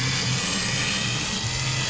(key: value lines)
label: anthrophony, boat engine
recorder: SoundTrap 500